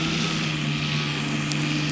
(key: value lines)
label: anthrophony, boat engine
recorder: SoundTrap 500